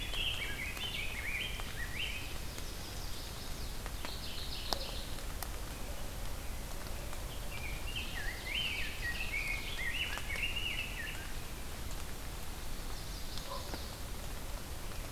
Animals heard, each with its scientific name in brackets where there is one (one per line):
Ovenbird (Seiurus aurocapilla)
Rose-breasted Grosbeak (Pheucticus ludovicianus)
Chestnut-sided Warbler (Setophaga pensylvanica)
Pine Warbler (Setophaga pinus)
Mourning Warbler (Geothlypis philadelphia)